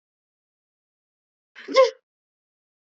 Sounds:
Sneeze